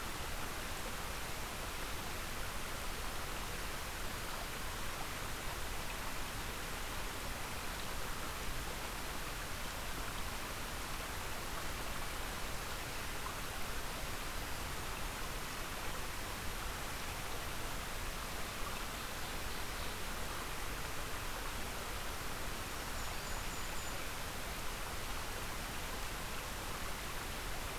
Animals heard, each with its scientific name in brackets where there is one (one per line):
Ovenbird (Seiurus aurocapilla)
Black-throated Green Warbler (Setophaga virens)
Golden-crowned Kinglet (Regulus satrapa)